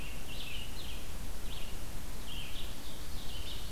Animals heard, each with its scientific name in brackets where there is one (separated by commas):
Ovenbird (Seiurus aurocapilla), Red-eyed Vireo (Vireo olivaceus)